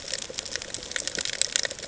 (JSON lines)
{"label": "ambient", "recorder": "HydroMoth"}